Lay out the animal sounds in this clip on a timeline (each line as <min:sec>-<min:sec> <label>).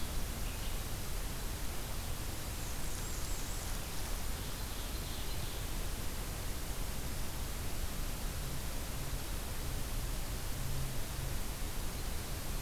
0:02.1-0:04.0 Blackburnian Warbler (Setophaga fusca)
0:04.1-0:06.1 Ovenbird (Seiurus aurocapilla)